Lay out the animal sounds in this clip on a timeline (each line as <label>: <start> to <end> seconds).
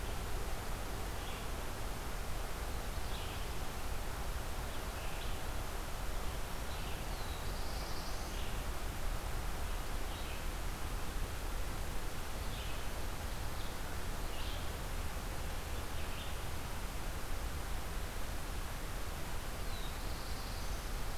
Red-eyed Vireo (Vireo olivaceus): 0.9 to 16.5 seconds
Black-throated Blue Warbler (Setophaga caerulescens): 6.9 to 8.5 seconds
Black-throated Blue Warbler (Setophaga caerulescens): 19.4 to 21.2 seconds